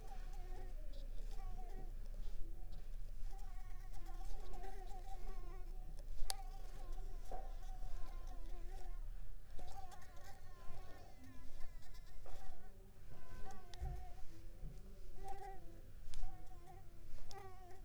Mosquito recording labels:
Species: Mansonia uniformis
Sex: female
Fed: unfed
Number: one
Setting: cup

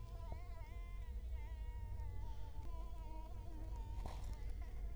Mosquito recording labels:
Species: Culex quinquefasciatus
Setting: cup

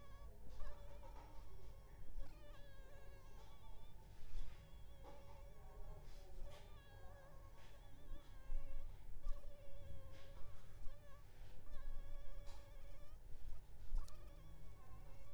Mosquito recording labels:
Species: mosquito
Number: one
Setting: cup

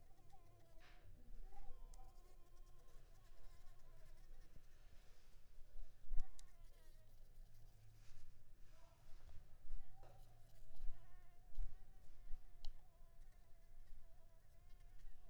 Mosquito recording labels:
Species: Anopheles maculipalpis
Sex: female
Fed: unfed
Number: one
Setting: cup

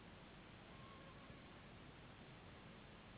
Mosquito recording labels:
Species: Anopheles gambiae s.s.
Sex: female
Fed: unfed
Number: one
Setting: insect culture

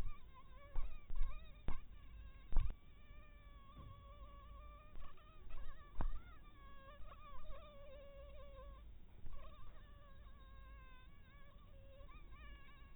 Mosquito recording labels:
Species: mosquito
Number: one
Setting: cup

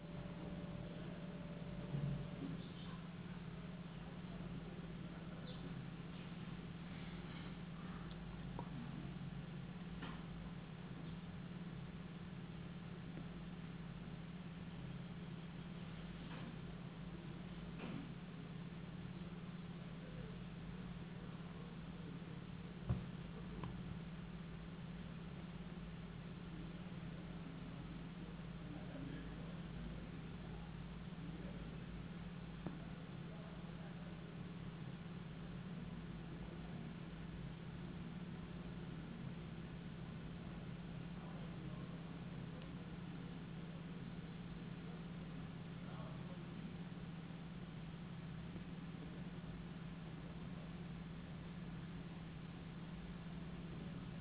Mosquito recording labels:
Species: no mosquito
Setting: insect culture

